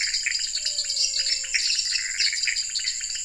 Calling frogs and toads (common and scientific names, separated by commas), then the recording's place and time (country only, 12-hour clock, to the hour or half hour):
dwarf tree frog (Dendropsophus nanus), pointedbelly frog (Leptodactylus podicipinus), Pithecopus azureus, menwig frog (Physalaemus albonotatus), lesser tree frog (Dendropsophus minutus)
Brazil, 9pm